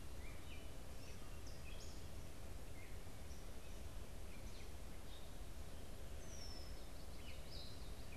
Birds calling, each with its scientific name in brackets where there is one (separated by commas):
Red-winged Blackbird (Agelaius phoeniceus), Gray Catbird (Dumetella carolinensis)